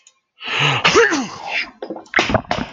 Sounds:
Sneeze